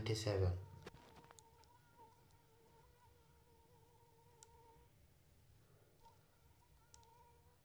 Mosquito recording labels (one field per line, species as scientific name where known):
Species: Anopheles arabiensis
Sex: female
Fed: unfed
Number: one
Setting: cup